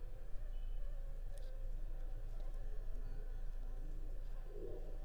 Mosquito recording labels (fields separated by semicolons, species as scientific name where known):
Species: Anopheles funestus s.s.; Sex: female; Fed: unfed; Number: one; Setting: cup